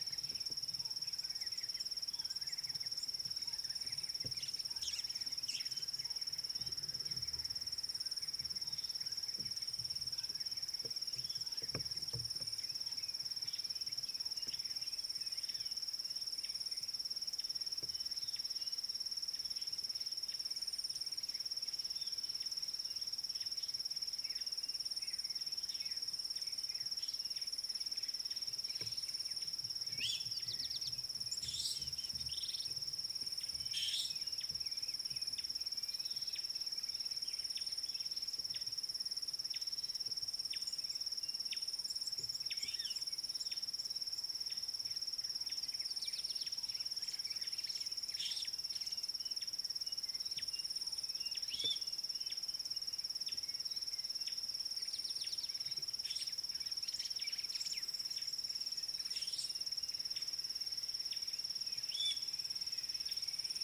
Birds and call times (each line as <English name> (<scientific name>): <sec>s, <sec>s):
White-browed Sparrow-Weaver (Plocepasser mahali): 4.9s
Meyer's Parrot (Poicephalus meyeri): 31.6s, 33.9s, 51.9s, 62.0s
Rattling Cisticola (Cisticola chiniana): 32.5s
Gray Wren-Warbler (Calamonastes simplex): 35.4s, 40.5s
Red-cheeked Cordonbleu (Uraeginthus bengalus): 42.1s